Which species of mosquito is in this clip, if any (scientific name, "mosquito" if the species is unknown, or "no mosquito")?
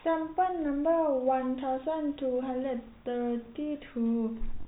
no mosquito